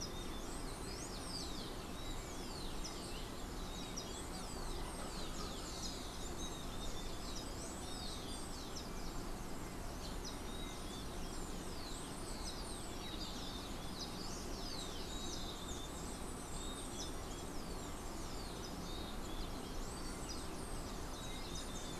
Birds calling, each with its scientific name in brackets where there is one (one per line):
unidentified bird
Rufous-collared Sparrow (Zonotrichia capensis)